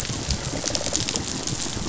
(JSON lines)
{"label": "biophony, rattle response", "recorder": "SoundTrap 500"}